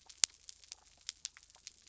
{"label": "biophony", "recorder": "SoundTrap 300"}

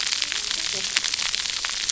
{"label": "biophony, cascading saw", "recorder": "SoundTrap 300"}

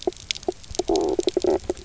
{"label": "biophony, knock croak", "recorder": "SoundTrap 300"}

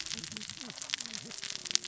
{"label": "biophony, cascading saw", "recorder": "SoundTrap 600 or HydroMoth"}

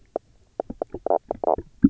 {"label": "biophony, knock croak", "recorder": "SoundTrap 300"}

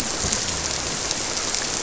{"label": "biophony", "recorder": "SoundTrap 300"}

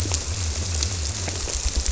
{"label": "biophony", "recorder": "SoundTrap 300"}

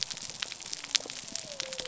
{"label": "biophony", "recorder": "SoundTrap 300"}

